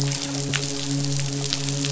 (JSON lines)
{"label": "biophony, midshipman", "recorder": "SoundTrap 500"}